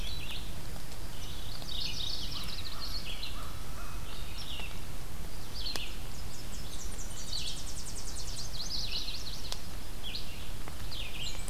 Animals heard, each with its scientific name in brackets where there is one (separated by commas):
Black-and-white Warbler (Mniotilta varia), Tennessee Warbler (Leiothlypis peregrina), Red-eyed Vireo (Vireo olivaceus), Yellow-rumped Warbler (Setophaga coronata), American Crow (Corvus brachyrhynchos), Mourning Warbler (Geothlypis philadelphia)